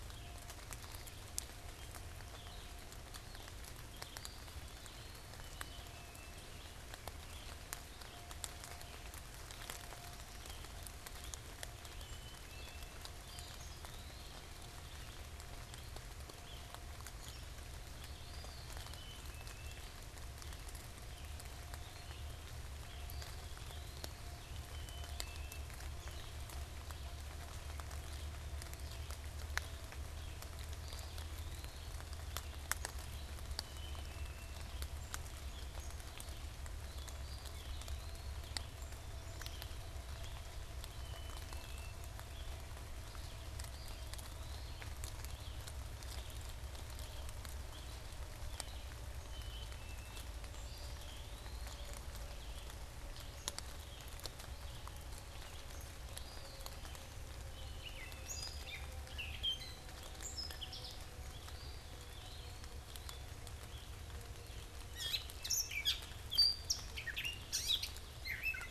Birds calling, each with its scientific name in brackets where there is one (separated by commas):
Red-eyed Vireo (Vireo olivaceus), Black-capped Chickadee (Poecile atricapillus), Gray Catbird (Dumetella carolinensis), Eastern Wood-Pewee (Contopus virens)